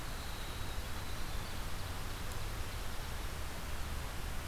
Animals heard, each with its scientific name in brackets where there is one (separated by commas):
Winter Wren (Troglodytes hiemalis), Ovenbird (Seiurus aurocapilla)